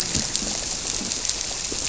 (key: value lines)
label: biophony
recorder: SoundTrap 300

label: biophony, grouper
recorder: SoundTrap 300